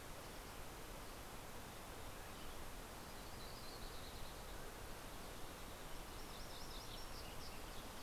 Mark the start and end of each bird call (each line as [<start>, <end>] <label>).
[2.09, 2.79] Western Tanager (Piranga ludoviciana)
[2.49, 5.09] Yellow-rumped Warbler (Setophaga coronata)
[4.09, 5.59] Mountain Quail (Oreortyx pictus)